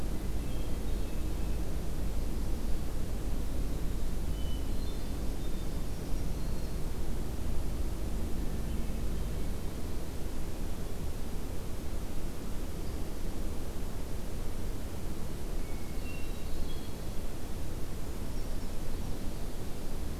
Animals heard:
Brown Creeper (Certhia americana)
Black-throated Green Warbler (Setophaga virens)
Hermit Thrush (Catharus guttatus)

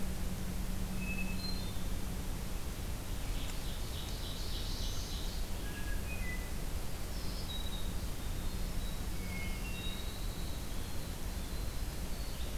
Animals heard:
Black-throated Blue Warbler (Setophaga caerulescens)
Winter Wren (Troglodytes hiemalis)
Hermit Thrush (Catharus guttatus)
Ovenbird (Seiurus aurocapilla)

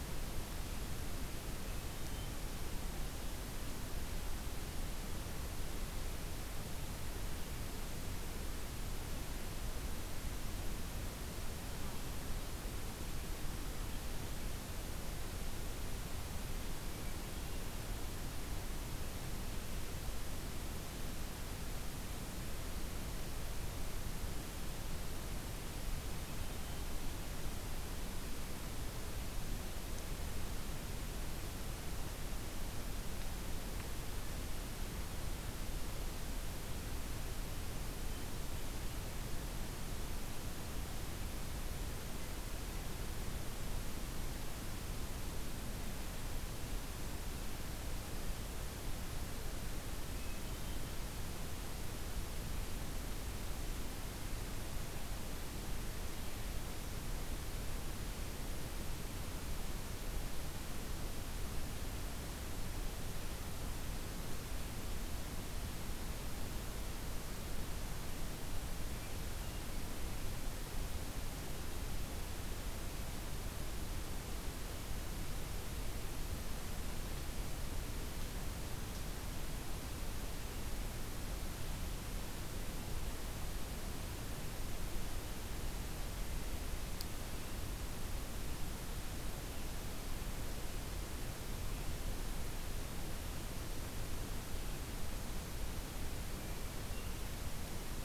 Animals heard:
Hermit Thrush (Catharus guttatus)

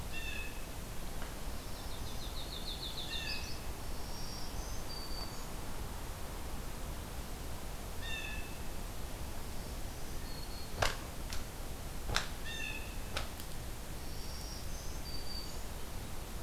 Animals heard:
Black-throated Green Warbler (Setophaga virens)
Yellow-rumped Warbler (Setophaga coronata)
Blue Jay (Cyanocitta cristata)

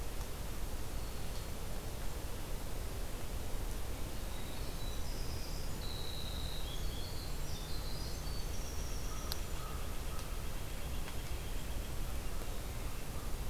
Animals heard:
Black-throated Green Warbler (Setophaga virens)
American Crow (Corvus brachyrhynchos)
White-breasted Nuthatch (Sitta carolinensis)
Winter Wren (Troglodytes hiemalis)

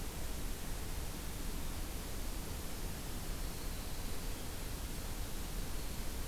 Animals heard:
Winter Wren (Troglodytes hiemalis)

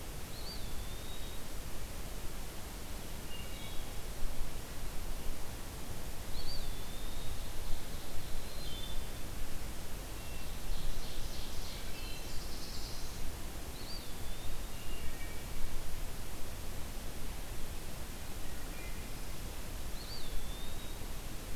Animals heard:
Eastern Wood-Pewee (Contopus virens)
Black-throated Blue Warbler (Setophaga caerulescens)
Wood Thrush (Hylocichla mustelina)
Ovenbird (Seiurus aurocapilla)

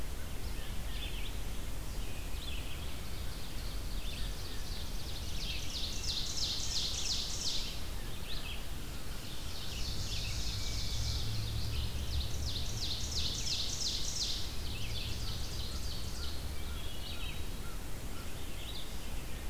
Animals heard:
Hermit Thrush (Catharus guttatus)
American Crow (Corvus brachyrhynchos)
Ovenbird (Seiurus aurocapilla)
Red-eyed Vireo (Vireo olivaceus)

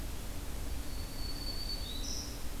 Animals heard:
Black-throated Green Warbler (Setophaga virens)

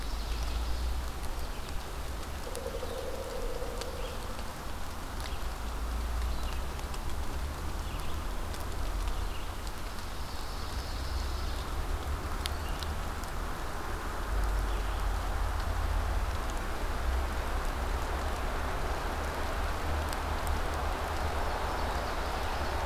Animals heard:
Pine Warbler (Setophaga pinus)
Red-eyed Vireo (Vireo olivaceus)
Ovenbird (Seiurus aurocapilla)
Pileated Woodpecker (Dryocopus pileatus)

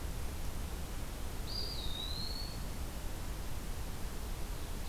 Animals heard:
Eastern Wood-Pewee (Contopus virens)

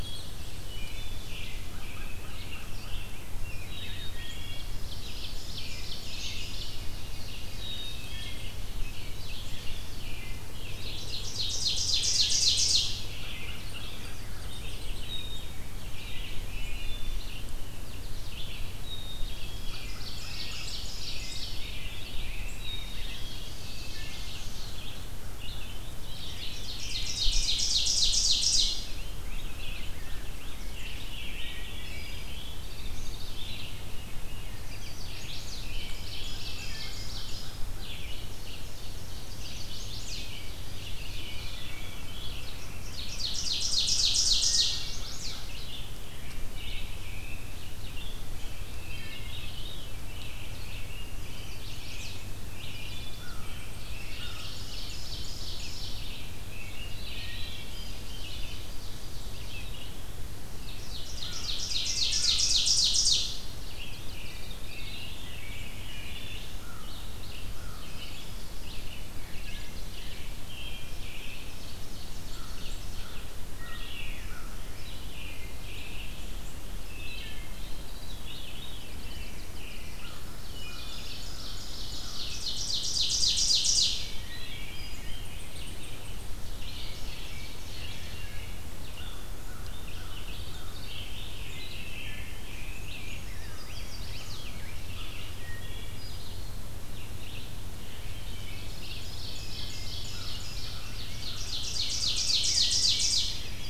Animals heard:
Veery (Catharus fuscescens)
American Robin (Turdus migratorius)
Red-eyed Vireo (Vireo olivaceus)
unidentified call
Chestnut-sided Warbler (Setophaga pensylvanica)
Ovenbird (Seiurus aurocapilla)
Wood Thrush (Hylocichla mustelina)
Black-capped Chickadee (Poecile atricapillus)
American Crow (Corvus brachyrhynchos)
Rose-breasted Grosbeak (Pheucticus ludovicianus)

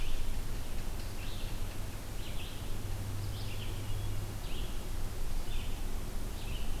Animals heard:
Red-eyed Vireo (Vireo olivaceus)
unknown mammal

